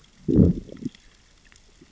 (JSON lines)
{"label": "biophony, growl", "recorder": "SoundTrap 600 or HydroMoth"}